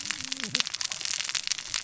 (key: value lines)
label: biophony, cascading saw
recorder: SoundTrap 600 or HydroMoth